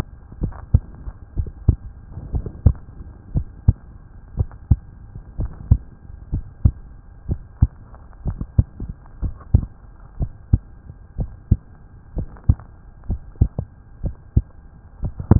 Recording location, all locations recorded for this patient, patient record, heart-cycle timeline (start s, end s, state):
tricuspid valve (TV)
aortic valve (AV)+pulmonary valve (PV)+tricuspid valve (TV)+mitral valve (MV)
#Age: Child
#Sex: Female
#Height: 111.0 cm
#Weight: 20.4 kg
#Pregnancy status: False
#Murmur: Absent
#Murmur locations: nan
#Most audible location: nan
#Systolic murmur timing: nan
#Systolic murmur shape: nan
#Systolic murmur grading: nan
#Systolic murmur pitch: nan
#Systolic murmur quality: nan
#Diastolic murmur timing: nan
#Diastolic murmur shape: nan
#Diastolic murmur grading: nan
#Diastolic murmur pitch: nan
#Diastolic murmur quality: nan
#Outcome: Normal
#Campaign: 2015 screening campaign
0.00	0.37	unannotated
0.37	0.54	S1
0.54	0.70	systole
0.70	0.82	S2
0.82	1.36	diastole
1.36	1.50	S1
1.50	1.66	systole
1.66	1.82	S2
1.82	2.30	diastole
2.30	2.44	S1
2.44	2.62	systole
2.62	2.78	S2
2.78	3.34	diastole
3.34	3.48	S1
3.48	3.64	systole
3.64	3.78	S2
3.78	4.36	diastole
4.36	4.50	S1
4.50	4.66	systole
4.66	4.80	S2
4.80	5.38	diastole
5.38	5.52	S1
5.52	5.68	systole
5.68	5.82	S2
5.82	6.32	diastole
6.32	6.46	S1
6.46	6.64	systole
6.64	6.76	S2
6.76	7.28	diastole
7.28	7.40	S1
7.40	7.58	systole
7.58	7.72	S2
7.72	8.24	diastole
8.24	8.38	S1
8.38	8.54	systole
8.54	8.68	S2
8.68	9.20	diastole
9.20	9.34	S1
9.34	9.54	systole
9.54	9.68	S2
9.68	10.18	diastole
10.18	10.30	S1
10.30	10.50	systole
10.50	10.64	S2
10.64	11.18	diastole
11.18	11.30	S1
11.30	11.48	systole
11.48	11.62	S2
11.62	12.15	diastole
12.15	12.28	S1
12.28	12.44	systole
12.44	12.64	S2
12.64	13.06	diastole
13.06	13.20	S1
13.20	13.38	systole
13.38	13.52	S2
13.52	14.01	diastole
14.01	14.16	S1
14.16	14.33	systole
14.33	14.48	S2
14.48	14.99	diastole
14.99	15.14	S1
15.14	15.39	unannotated